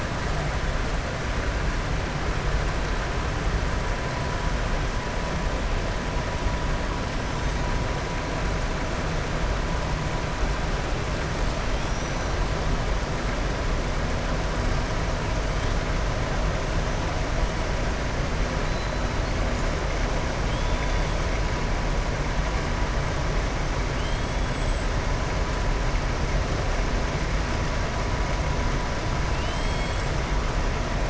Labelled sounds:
11.8	12.3	killer whale, southern resident, 5.0 to 6.1 kHz
29.3	30.0	killer whale, southern resident, 2.4 to 5.0 kHz

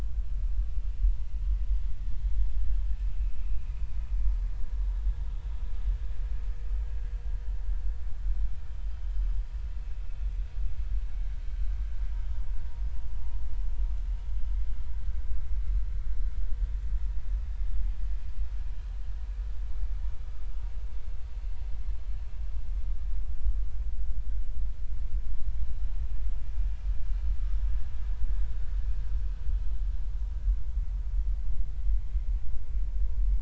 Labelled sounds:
3.3	3.7	vessel noise, 2.3 to 2.7 kHz

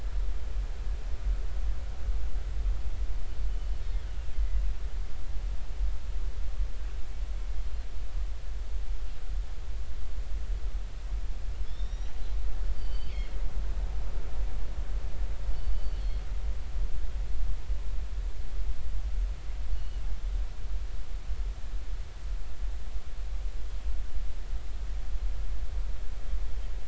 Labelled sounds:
4.3	4.6	killer whale, northern resident, G clan, GG subclan, 1.9 to 2.1 kHz
11.6	12.1	killer whale, northern resident, G clan, GG subclan, 3.3 to 6.0 kHz
12.8	13.1	killer whale, northern resident, G clan, GG subclan, 2.9 to 4.8 kHz
15.5	16.2	killer whale, northern resident, G clan, GG subclan, call N23ii, 4.2 to 4.6 kHz
19.7	20.0	killer whale, northern resident, G clan, GG subclan, 2.8 to 3.1 kHz

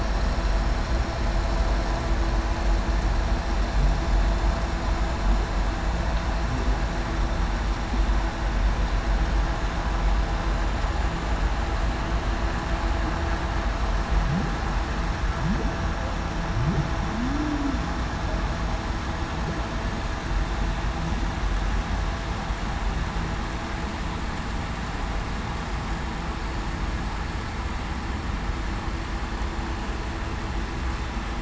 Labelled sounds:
17.1	17.8	humpback whale, 0.21 to 0.33 kHz

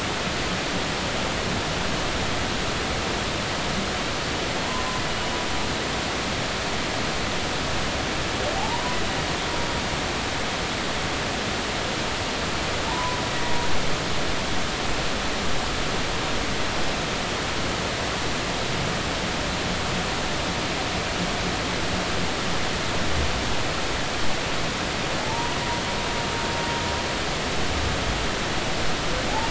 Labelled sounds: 5.1	5.4	humpback whale, 2.8 to 3.0 kHz
8.5	9.0	humpback whale, 0.80 to 1.0 kHz
12.9	13.2	humpback whale, 0.86 to 1.1 kHz
25.2	25.6	humpback whale, 0.80 to 1.0 kHz

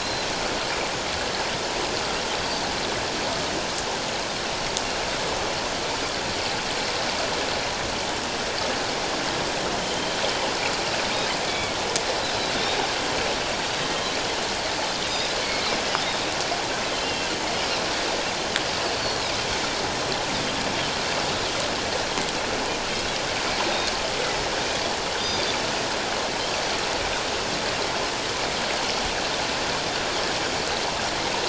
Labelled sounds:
0.0	0.3	Pacific white-sided dolphin, 3.9 to 4.2 kHz
2.4	2.6	Pacific white-sided dolphin, 4.5 to 4.8 kHz
9.8	10.1	Pacific white-sided dolphin, 2.9 to 3.2 kHz
11.5	11.8	Pacific white-sided dolphin, 2.2 to 2.4 kHz
13.9	15.7	Pacific white-sided dolphin, 2.1 to 5.1 kHz
16.9	17.3	Pacific white-sided dolphin, 2.7 to 3.2 kHz
19.0	19.3	Pacific white-sided dolphin, 4.1 to 4.6 kHz
25.2	25.5	Pacific white-sided dolphin, 3.5 to 3.7 kHz

